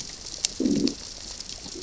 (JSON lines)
{"label": "biophony, growl", "recorder": "SoundTrap 600 or HydroMoth"}